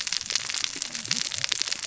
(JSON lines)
{"label": "biophony, cascading saw", "recorder": "SoundTrap 600 or HydroMoth"}